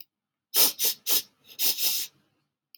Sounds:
Sniff